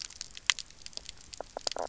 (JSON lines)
{"label": "biophony, knock croak", "recorder": "SoundTrap 300"}